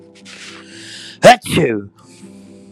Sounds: Sneeze